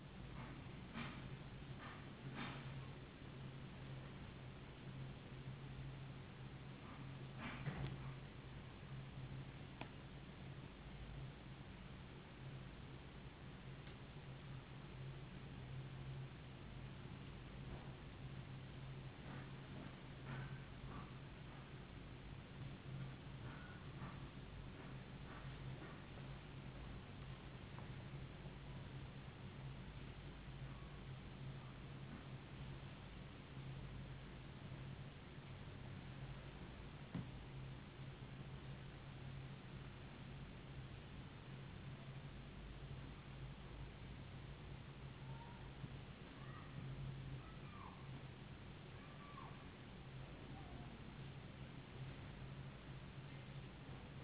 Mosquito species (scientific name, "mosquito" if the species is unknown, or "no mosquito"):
no mosquito